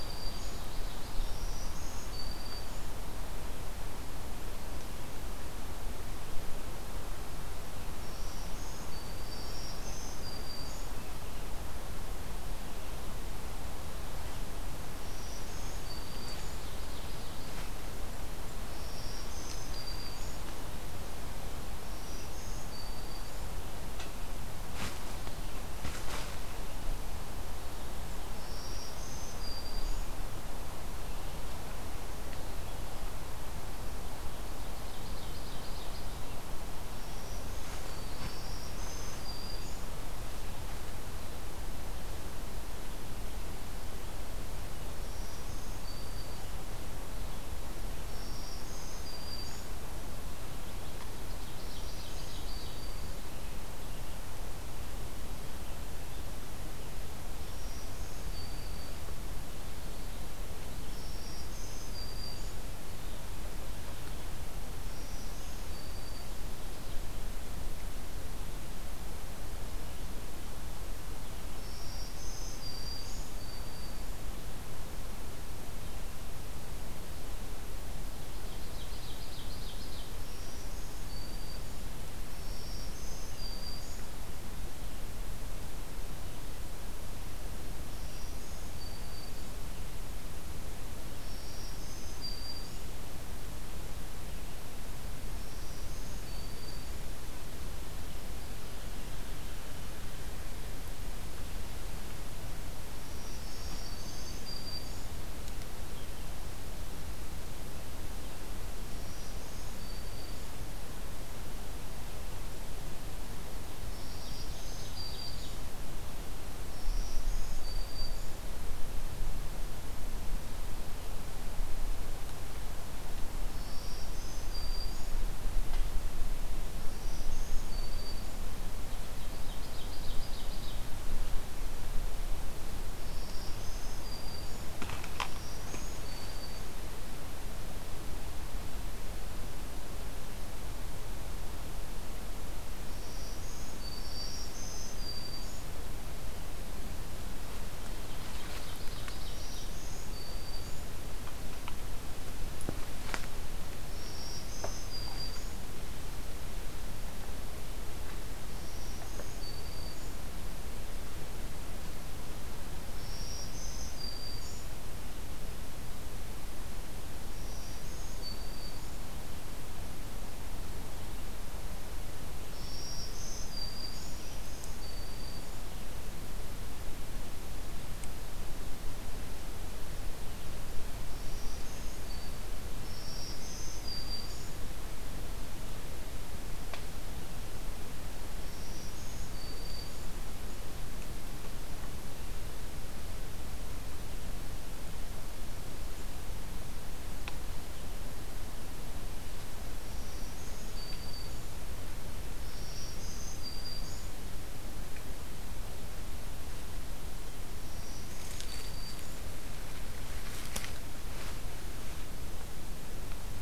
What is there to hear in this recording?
Black-throated Green Warbler, Ovenbird